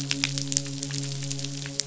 {"label": "biophony, midshipman", "recorder": "SoundTrap 500"}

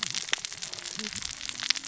{"label": "biophony, cascading saw", "recorder": "SoundTrap 600 or HydroMoth"}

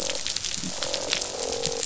{"label": "biophony, croak", "recorder": "SoundTrap 500"}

